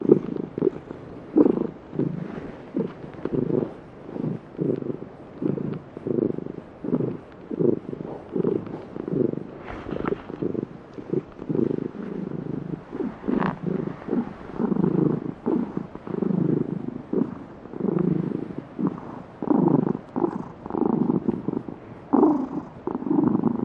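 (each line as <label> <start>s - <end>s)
A cat is purring nearby. 0.0s - 23.6s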